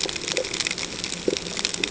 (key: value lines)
label: ambient
recorder: HydroMoth